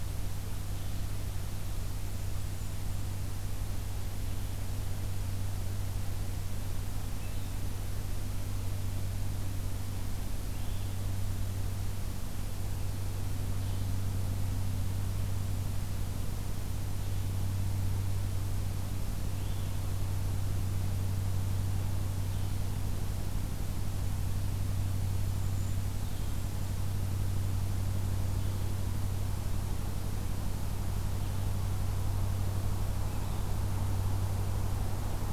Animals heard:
Blue-headed Vireo (Vireo solitarius)

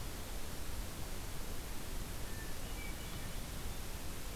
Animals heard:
Hermit Thrush (Catharus guttatus)

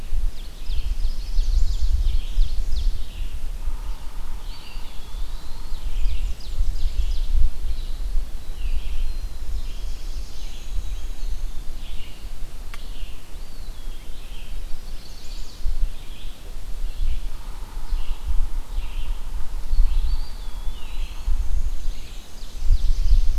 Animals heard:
Chestnut-sided Warbler (Setophaga pensylvanica)
Ovenbird (Seiurus aurocapilla)
Red-eyed Vireo (Vireo olivaceus)
Black-throated Blue Warbler (Setophaga caerulescens)
Black-and-white Warbler (Mniotilta varia)
Eastern Wood-Pewee (Contopus virens)

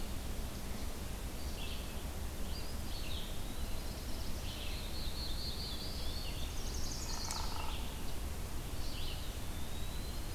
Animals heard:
Black-throated Blue Warbler (Setophaga caerulescens)
Chestnut-sided Warbler (Setophaga pensylvanica)
Hairy Woodpecker (Dryobates villosus)
Eastern Wood-Pewee (Contopus virens)
Red-eyed Vireo (Vireo olivaceus)

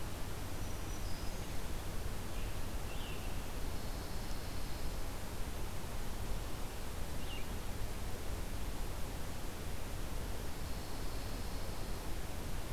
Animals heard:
Pine Warbler (Setophaga pinus)
American Robin (Turdus migratorius)
Red-eyed Vireo (Vireo olivaceus)
Black-throated Green Warbler (Setophaga virens)

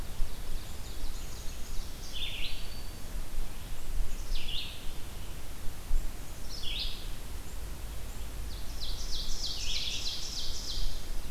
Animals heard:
Ovenbird (Seiurus aurocapilla)
Black-capped Chickadee (Poecile atricapillus)
Black-throated Green Warbler (Setophaga virens)
Red-eyed Vireo (Vireo olivaceus)

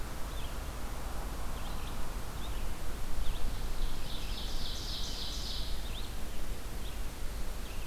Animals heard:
Ovenbird (Seiurus aurocapilla)
Red-eyed Vireo (Vireo olivaceus)

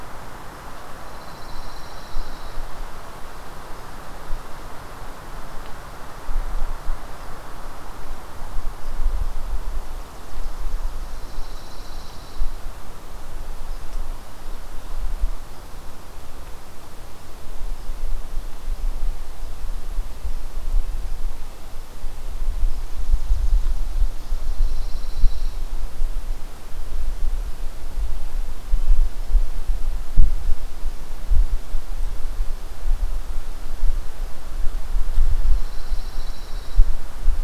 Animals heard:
Pine Warbler (Setophaga pinus)

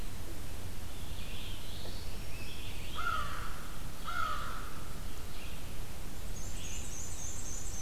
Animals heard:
Black-throated Blue Warbler (Setophaga caerulescens)
Red-eyed Vireo (Vireo olivaceus)
Black-and-white Warbler (Mniotilta varia)
American Crow (Corvus brachyrhynchos)

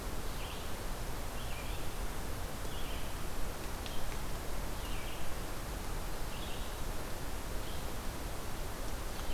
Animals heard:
Red-eyed Vireo (Vireo olivaceus)

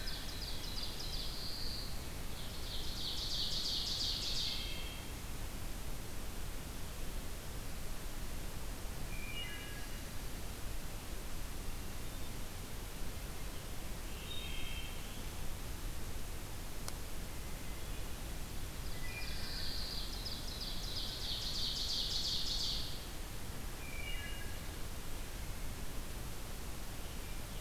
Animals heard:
Wood Thrush (Hylocichla mustelina)
Ovenbird (Seiurus aurocapilla)
Pine Warbler (Setophaga pinus)

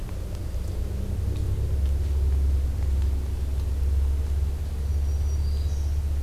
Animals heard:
Black-throated Green Warbler (Setophaga virens)

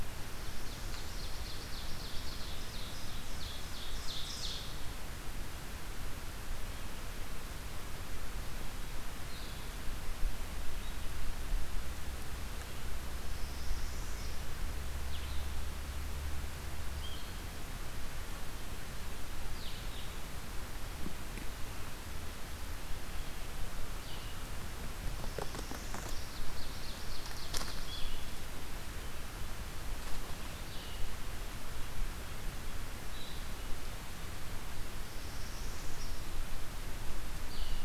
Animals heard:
Northern Parula (Setophaga americana)
Ovenbird (Seiurus aurocapilla)
Blue-headed Vireo (Vireo solitarius)

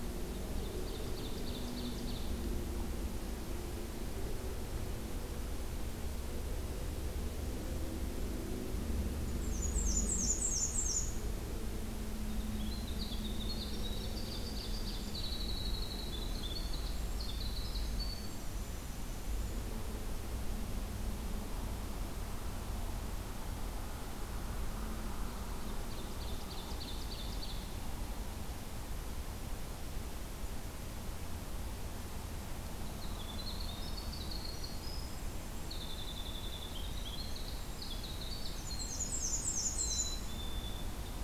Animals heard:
Black-and-white Warbler (Mniotilta varia)
Winter Wren (Troglodytes hiemalis)
Black-capped Chickadee (Poecile atricapillus)
Ovenbird (Seiurus aurocapilla)

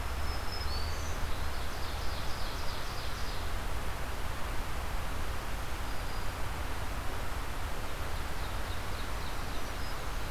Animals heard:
Black-throated Green Warbler (Setophaga virens)
Ovenbird (Seiurus aurocapilla)

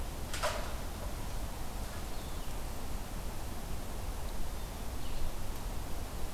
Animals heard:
Blue-headed Vireo (Vireo solitarius)

